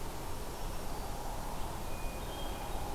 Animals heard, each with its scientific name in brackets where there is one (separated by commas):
Black-throated Green Warbler (Setophaga virens), Hermit Thrush (Catharus guttatus)